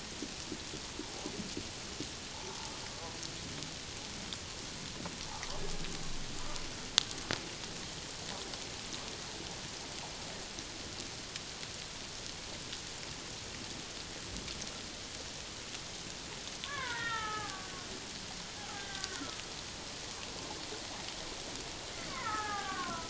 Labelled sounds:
1.0	1.3	killer whale, Bigg's (transient), 0.78 to 0.97 kHz
2.3	2.7	killer whale, Bigg's (transient), 0.81 to 1.0 kHz
16.6	17.7	killer whale, Bigg's (transient), 0.78 to 3.8 kHz
18.7	19.4	killer whale, Bigg's (transient), 1.0 to 1.7 kHz
22.1	23.0	killer whale, Bigg's (transient), 0.78 to 2.3 kHz

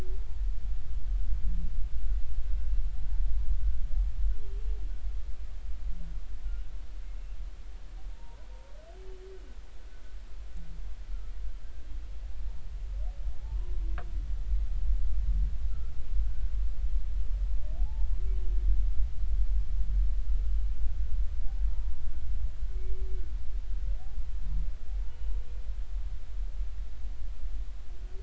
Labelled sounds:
8.1	8.5	humpback whale, 0.86 to 1.1 kHz
13.4	13.7	humpback whale, 0.80 to 1.1 kHz
17.8	18.1	humpback whale, 0.80 to 0.93 kHz

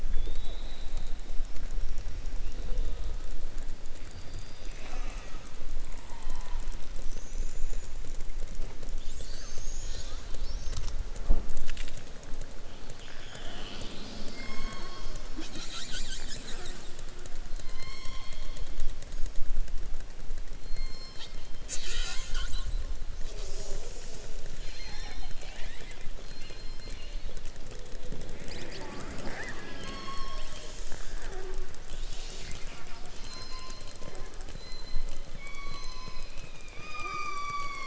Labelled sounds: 0.0	1.1	killer whale, southern resident, 1.7 to 4.6 kHz
17.6	18.3	killer whale, southern resident, 0.86 to 6.5 kHz

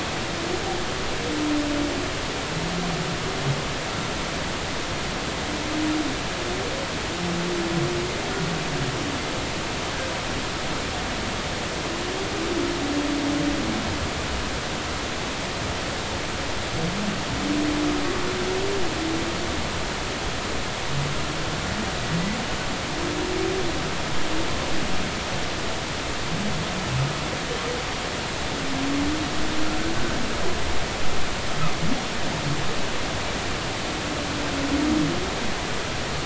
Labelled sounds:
30.0	30.2	humpback whale, 1.5 to 1.7 kHz

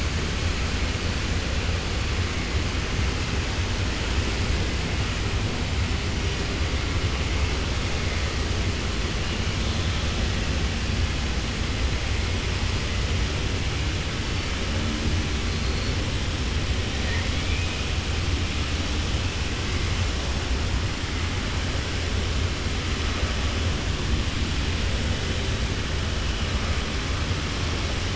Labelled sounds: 15.5	15.9	killer whale, southern resident, 4.2 to 4.5 kHz
17.0	17.8	killer whale, southern resident, 0.95 to 3.5 kHz

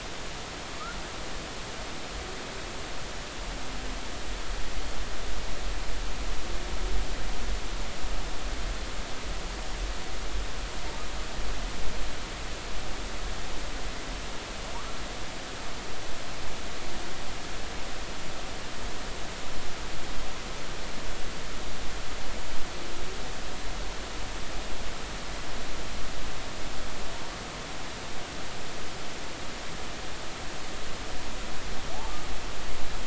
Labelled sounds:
31.9	32.2	humpback whale, 0.80 to 1.2 kHz

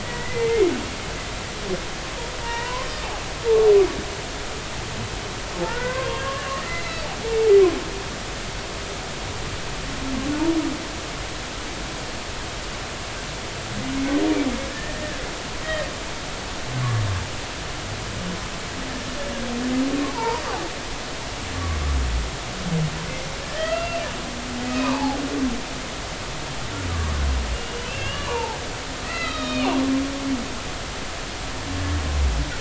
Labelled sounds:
0.0	0.7	humpback whale, 1.9 to 2.2 kHz
2.4	2.9	humpback whale, 0.86 to 2.0 kHz
5.6	7.0	humpback whale, 0.93 to 2.2 kHz
14.7	15.2	humpback whale, 1.6 to 1.9 kHz
20.1	20.4	humpback whale, 0.83 to 1.1 kHz
23.5	25.2	humpback whale, 0.80 to 2.8 kHz
27.5	28.6	humpback whale, 0.80 to 3.1 kHz
29.0	29.8	humpback whale, 1.2 to 4.1 kHz

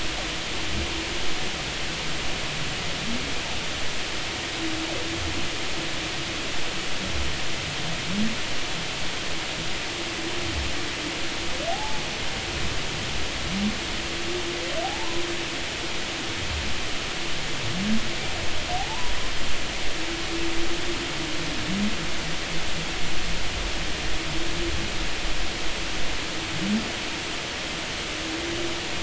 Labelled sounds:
11.7	12.0	humpback whale, 0.80 to 0.93 kHz
14.8	15.2	humpback whale, 0.80 to 1.1 kHz
18.8	19.1	humpback whale, 0.80 to 1.1 kHz

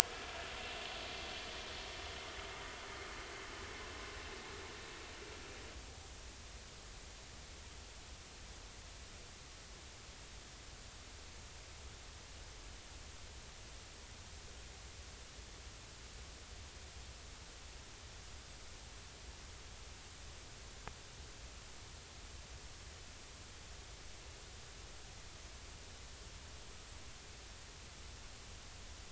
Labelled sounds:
0.0	0.3	vessel noise, 1.6 to 1.8 kHz

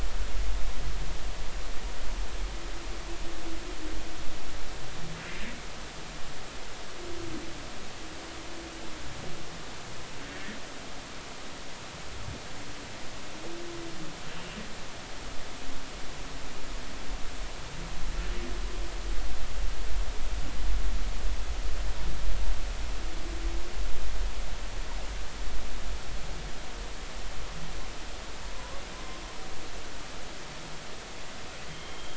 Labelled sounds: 28.5	28.8	humpback whale, 0.93 to 1.2 kHz
31.7	32.1	humpback whale, 3.0 to 3.3 kHz

